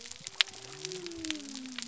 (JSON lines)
{"label": "biophony", "recorder": "SoundTrap 300"}